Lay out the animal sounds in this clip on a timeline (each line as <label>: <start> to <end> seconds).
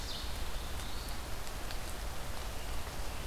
Black-throated Blue Warbler (Setophaga caerulescens): 0.3 to 1.3 seconds